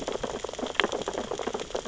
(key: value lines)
label: biophony, sea urchins (Echinidae)
recorder: SoundTrap 600 or HydroMoth